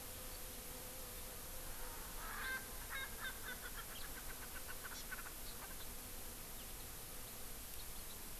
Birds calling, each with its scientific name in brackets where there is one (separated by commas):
Erckel's Francolin (Pternistis erckelii), Hawaii Amakihi (Chlorodrepanis virens)